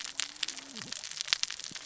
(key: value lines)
label: biophony, cascading saw
recorder: SoundTrap 600 or HydroMoth